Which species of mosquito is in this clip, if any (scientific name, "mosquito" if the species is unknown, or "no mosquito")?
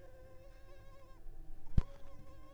Culex tigripes